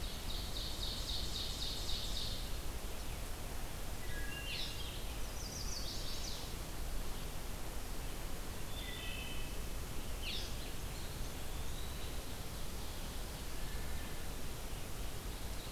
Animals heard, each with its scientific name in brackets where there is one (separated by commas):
Ovenbird (Seiurus aurocapilla), Wood Thrush (Hylocichla mustelina), Chestnut-sided Warbler (Setophaga pensylvanica), Red-eyed Vireo (Vireo olivaceus), Eastern Wood-Pewee (Contopus virens)